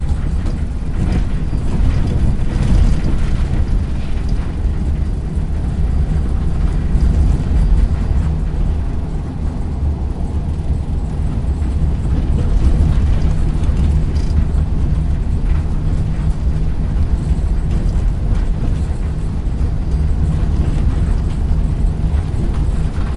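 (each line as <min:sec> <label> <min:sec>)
0:00.1 Bus engine running. 0:23.2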